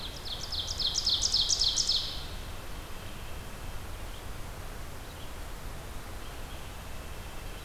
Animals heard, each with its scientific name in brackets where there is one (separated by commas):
Ovenbird (Seiurus aurocapilla), Red-eyed Vireo (Vireo olivaceus), White-breasted Nuthatch (Sitta carolinensis)